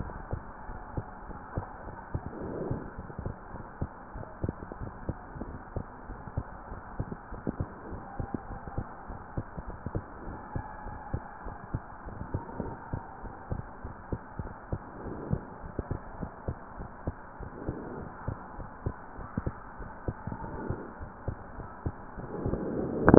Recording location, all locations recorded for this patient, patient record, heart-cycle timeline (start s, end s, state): pulmonary valve (PV)
aortic valve (AV)+pulmonary valve (PV)+tricuspid valve (TV)+mitral valve (MV)
#Age: Child
#Sex: Female
#Height: 135.0 cm
#Weight: 40.5 kg
#Pregnancy status: False
#Murmur: Absent
#Murmur locations: nan
#Most audible location: nan
#Systolic murmur timing: nan
#Systolic murmur shape: nan
#Systolic murmur grading: nan
#Systolic murmur pitch: nan
#Systolic murmur quality: nan
#Diastolic murmur timing: nan
#Diastolic murmur shape: nan
#Diastolic murmur grading: nan
#Diastolic murmur pitch: nan
#Diastolic murmur quality: nan
#Outcome: Normal
#Campaign: 2015 screening campaign
0.00	0.44	unannotated
0.44	0.68	diastole
0.68	0.80	S1
0.80	0.92	systole
0.92	1.06	S2
1.06	1.28	diastole
1.28	1.40	S1
1.40	1.52	systole
1.52	1.64	S2
1.64	1.84	diastole
1.84	1.94	S1
1.94	2.12	systole
2.12	2.24	S2
2.24	2.42	diastole
2.42	2.56	S1
2.56	2.68	systole
2.68	2.82	S2
2.82	2.98	diastole
2.98	3.10	S1
3.10	3.24	systole
3.24	3.36	S2
3.36	3.54	diastole
3.54	3.64	S1
3.64	3.78	systole
3.78	3.90	S2
3.90	4.12	diastole
4.12	4.26	S1
4.26	4.40	systole
4.40	4.56	S2
4.56	4.76	diastole
4.76	4.92	S1
4.92	5.04	systole
5.04	5.18	S2
5.18	5.40	diastole
5.40	5.56	S1
5.56	5.72	systole
5.72	5.84	S2
5.84	6.06	diastole
6.06	6.18	S1
6.18	6.32	systole
6.32	6.48	S2
6.48	6.70	diastole
6.70	6.82	S1
6.82	6.94	systole
6.94	7.08	S2
7.08	7.30	diastole
7.30	7.42	S1
7.42	7.58	systole
7.58	7.68	S2
7.68	7.88	diastole
7.88	8.02	S1
8.02	8.18	systole
8.18	8.28	S2
8.28	8.48	diastole
8.48	8.60	S1
8.60	8.76	systole
8.76	8.88	S2
8.88	9.10	diastole
9.10	9.20	S1
9.20	9.36	systole
9.36	9.46	S2
9.46	9.66	diastole
9.66	9.80	S1
9.80	9.94	systole
9.94	10.06	S2
10.06	10.26	diastole
10.26	10.40	S1
10.40	10.54	systole
10.54	10.68	S2
10.68	10.86	diastole
10.86	10.96	S1
10.96	11.12	systole
11.12	11.24	S2
11.24	11.44	diastole
11.44	11.56	S1
11.56	11.72	systole
11.72	11.84	S2
11.84	12.06	diastole
12.06	12.20	S1
12.20	12.32	systole
12.32	12.42	S2
12.42	12.60	diastole
12.60	12.74	S1
12.74	12.88	systole
12.88	13.00	S2
13.00	13.22	diastole
13.22	13.34	S1
13.34	13.50	systole
13.50	13.66	S2
13.66	13.84	diastole
13.84	13.94	S1
13.94	14.08	systole
14.08	14.20	S2
14.20	14.38	diastole
14.38	14.52	S1
14.52	14.70	systole
14.70	14.82	S2
14.82	15.04	diastole
15.04	15.18	S1
15.18	15.28	systole
15.28	15.42	S2
15.42	15.64	diastole
15.64	15.74	S1
15.74	15.90	systole
15.90	16.04	S2
16.04	16.20	diastole
16.20	16.32	S1
16.32	16.46	systole
16.46	16.58	S2
16.58	16.78	diastole
16.78	16.90	S1
16.90	17.06	systole
17.06	17.16	S2
17.16	17.40	diastole
17.40	17.52	S1
17.52	17.64	systole
17.64	17.78	S2
17.78	17.98	diastole
17.98	18.08	S1
18.08	18.24	systole
18.24	18.38	S2
18.38	18.58	diastole
18.58	18.70	S1
18.70	18.84	systole
18.84	18.96	S2
18.96	19.18	diastole
19.18	19.28	S1
19.28	19.46	systole
19.46	19.60	S2
19.60	19.80	diastole
19.80	19.90	S1
19.90	20.04	systole
20.04	20.13	S2
20.13	20.28	diastole
20.28	23.18	unannotated